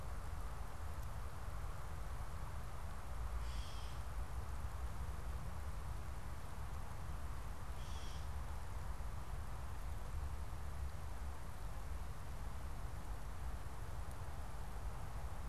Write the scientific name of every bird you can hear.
Dumetella carolinensis